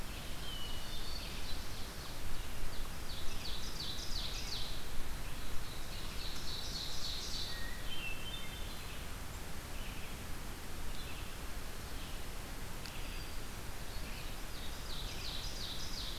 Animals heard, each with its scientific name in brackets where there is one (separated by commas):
Ovenbird (Seiurus aurocapilla), Red-eyed Vireo (Vireo olivaceus), Hermit Thrush (Catharus guttatus)